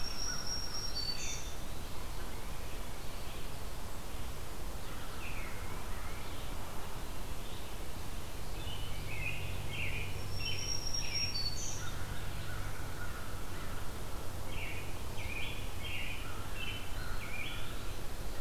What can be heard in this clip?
American Crow, Black-throated Green Warbler, Red-eyed Vireo, Veery, American Robin, Eastern Wood-Pewee